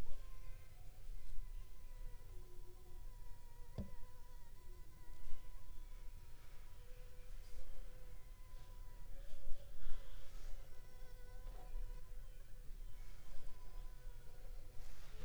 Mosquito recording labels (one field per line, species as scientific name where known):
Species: Anopheles funestus s.l.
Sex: female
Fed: unfed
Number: one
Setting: cup